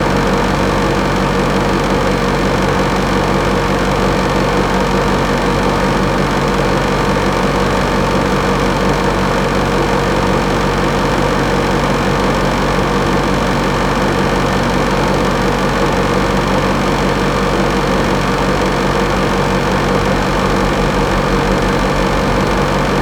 Is this a sound that a human would make?
no